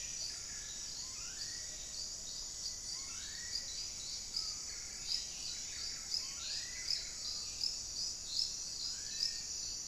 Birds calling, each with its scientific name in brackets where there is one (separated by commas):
Buff-breasted Wren (Cantorchilus leucotis), Black-faced Cotinga (Conioptilon mcilhennyi), Hauxwell's Thrush (Turdus hauxwelli)